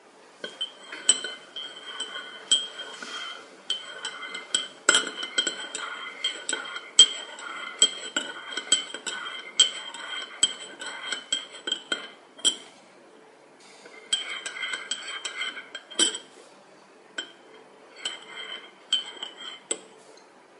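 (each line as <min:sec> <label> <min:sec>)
0:00.4 Metallic sound of a spoon moving in circles inside a cup in a steady pattern. 0:13.0
0:14.1 The metallic sound of a spoon circling inside a cup, followed by it dropping. 0:16.8
0:17.1 The sound of a spoon thumping against a cup indoors. 0:17.3
0:18.0 Metallic noise of a spoon hitting the sides of a cup. 0:20.1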